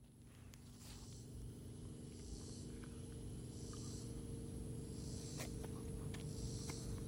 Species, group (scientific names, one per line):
Neotibicen robinsonianus
Cicadidae